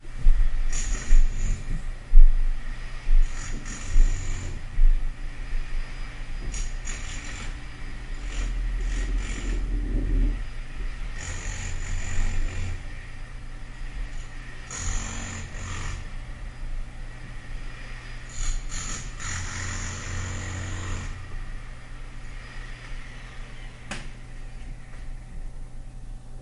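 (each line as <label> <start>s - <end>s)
Plumbers jackhammering through cement in a repeating pattern, then stopping. 0.0s - 26.4s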